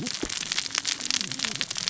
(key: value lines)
label: biophony, cascading saw
recorder: SoundTrap 600 or HydroMoth